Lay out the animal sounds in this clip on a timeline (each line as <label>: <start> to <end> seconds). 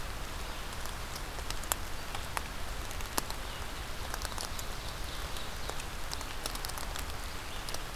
Ovenbird (Seiurus aurocapilla): 3.9 to 5.9 seconds